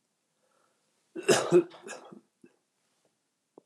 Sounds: Cough